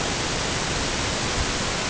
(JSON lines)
{"label": "ambient", "recorder": "HydroMoth"}